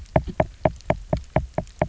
{"label": "biophony, knock", "recorder": "SoundTrap 300"}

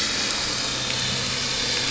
{"label": "anthrophony, boat engine", "recorder": "SoundTrap 500"}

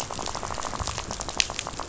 {"label": "biophony, rattle", "recorder": "SoundTrap 500"}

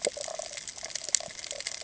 {"label": "ambient", "recorder": "HydroMoth"}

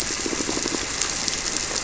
{"label": "biophony, squirrelfish (Holocentrus)", "recorder": "SoundTrap 300"}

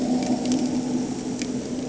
{"label": "anthrophony, boat engine", "recorder": "HydroMoth"}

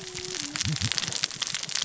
{"label": "biophony, cascading saw", "recorder": "SoundTrap 600 or HydroMoth"}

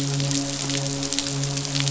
{"label": "biophony, midshipman", "recorder": "SoundTrap 500"}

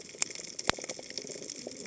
{"label": "biophony, cascading saw", "recorder": "HydroMoth"}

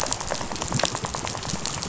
{"label": "biophony, rattle", "recorder": "SoundTrap 500"}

